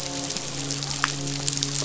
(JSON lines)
{"label": "biophony, midshipman", "recorder": "SoundTrap 500"}